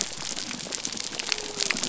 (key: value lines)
label: biophony
recorder: SoundTrap 300